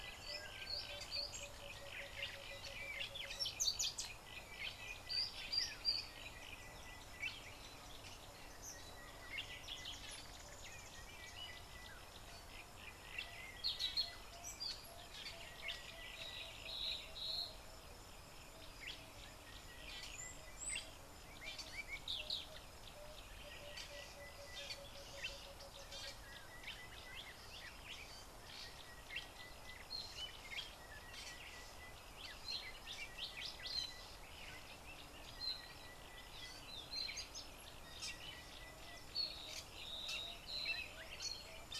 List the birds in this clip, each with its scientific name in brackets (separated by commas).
Sulphur-breasted Bushshrike (Telophorus sulfureopectus), Red-cheeked Cordonbleu (Uraeginthus bengalus)